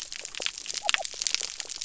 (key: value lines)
label: biophony
recorder: SoundTrap 300